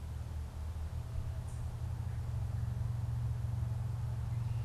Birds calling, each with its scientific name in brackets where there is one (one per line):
unidentified bird